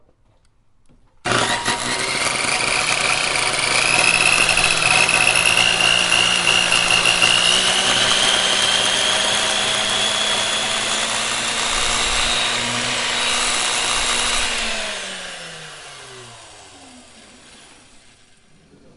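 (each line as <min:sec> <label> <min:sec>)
0:01.2 An engine starts with a loud noise. 0:09.4
0:09.7 A machine whirs and vibrates steadily. 0:14.3
0:14.5 The engine of a machine stops and the sound fades away. 0:17.5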